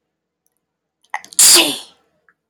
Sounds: Sneeze